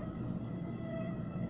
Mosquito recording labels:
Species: Aedes albopictus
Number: one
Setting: insect culture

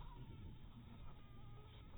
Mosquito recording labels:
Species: Anopheles dirus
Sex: female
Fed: unfed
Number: one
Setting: cup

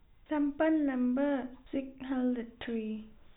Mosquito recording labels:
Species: no mosquito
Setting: cup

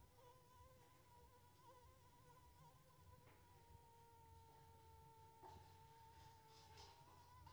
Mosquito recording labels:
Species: Anopheles arabiensis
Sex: female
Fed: unfed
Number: one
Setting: cup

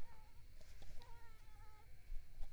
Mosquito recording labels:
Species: Mansonia africanus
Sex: female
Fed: unfed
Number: one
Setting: cup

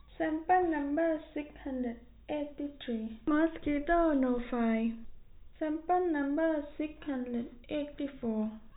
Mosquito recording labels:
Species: no mosquito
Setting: cup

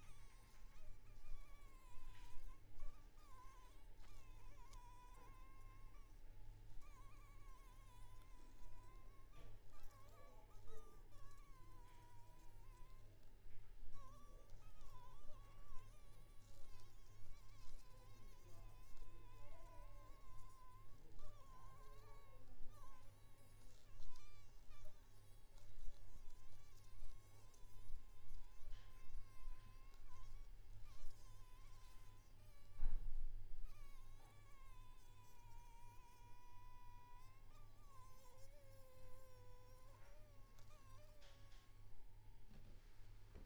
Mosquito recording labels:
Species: Anopheles maculipalpis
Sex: female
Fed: unfed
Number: one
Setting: cup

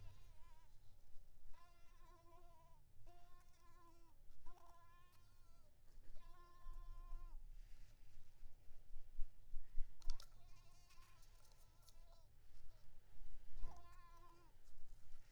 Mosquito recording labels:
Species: Mansonia uniformis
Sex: female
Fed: unfed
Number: one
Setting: cup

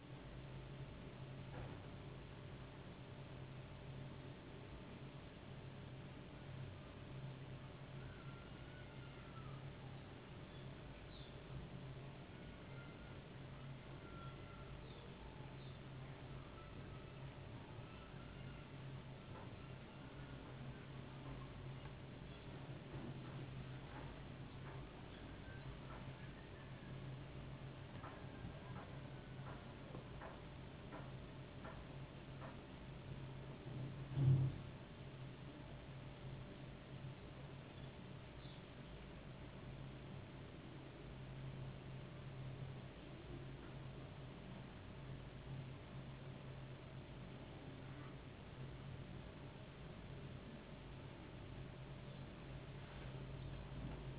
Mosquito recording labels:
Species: no mosquito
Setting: insect culture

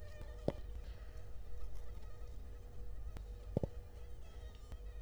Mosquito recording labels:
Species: Culex quinquefasciatus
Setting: cup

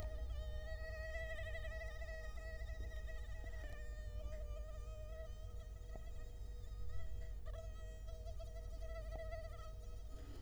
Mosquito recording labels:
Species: Culex quinquefasciatus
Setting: cup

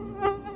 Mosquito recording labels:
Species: Anopheles quadriannulatus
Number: one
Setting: insect culture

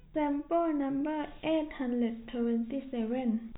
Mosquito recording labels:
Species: no mosquito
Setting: cup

